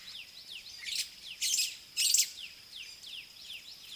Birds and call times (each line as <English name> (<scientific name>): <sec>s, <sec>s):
White-browed Sparrow-Weaver (Plocepasser mahali): 1.6s